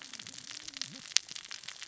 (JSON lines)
{"label": "biophony, cascading saw", "recorder": "SoundTrap 600 or HydroMoth"}